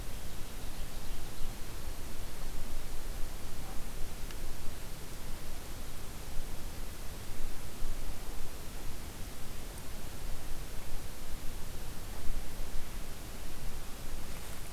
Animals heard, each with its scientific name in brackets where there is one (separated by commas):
Ovenbird (Seiurus aurocapilla)